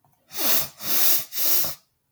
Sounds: Sniff